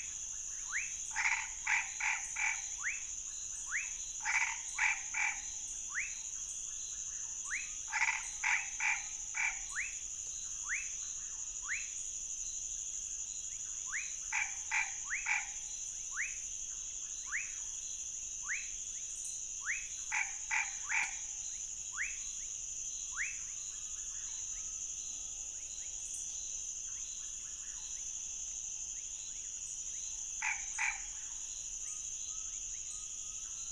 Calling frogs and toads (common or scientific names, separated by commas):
rufous frog, Chaco tree frog, Scinax fuscovarius